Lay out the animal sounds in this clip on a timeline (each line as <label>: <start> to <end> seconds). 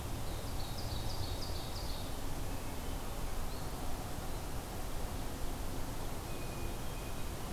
Ovenbird (Seiurus aurocapilla): 0.3 to 2.1 seconds
Hermit Thrush (Catharus guttatus): 2.4 to 3.2 seconds
Hermit Thrush (Catharus guttatus): 6.2 to 7.5 seconds